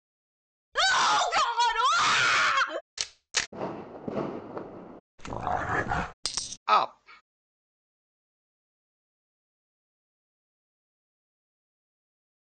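At 0.72 seconds, someone screams. Then, at 2.97 seconds, the sound of a camera is heard. Next, at 3.52 seconds, there are fireworks. Afterwards, at 5.18 seconds, you can hear a dog. Following that, at 6.24 seconds, a coin drops. Then, at 6.67 seconds, a voice says "up."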